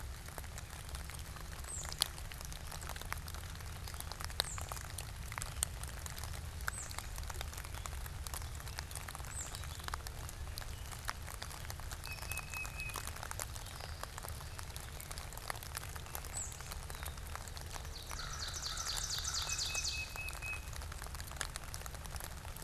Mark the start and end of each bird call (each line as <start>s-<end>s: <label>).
1.5s-10.1s: Tufted Titmouse (Baeolophus bicolor)
11.9s-13.3s: Tufted Titmouse (Baeolophus bicolor)
16.1s-16.7s: Tufted Titmouse (Baeolophus bicolor)
17.7s-20.3s: Ovenbird (Seiurus aurocapilla)
17.9s-20.0s: American Crow (Corvus brachyrhynchos)